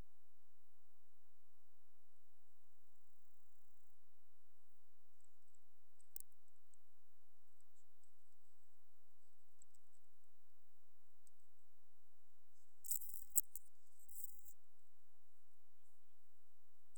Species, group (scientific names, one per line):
Chorthippus brunneus
Orthoptera